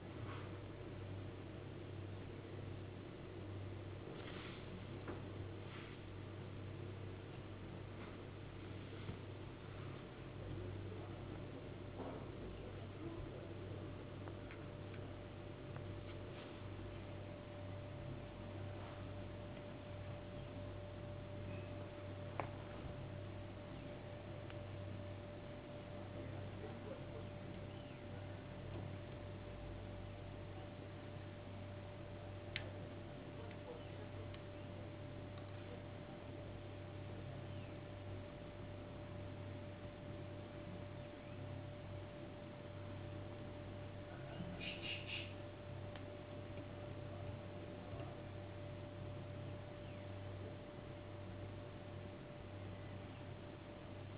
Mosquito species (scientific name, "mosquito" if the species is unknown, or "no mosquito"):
no mosquito